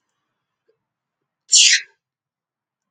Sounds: Sneeze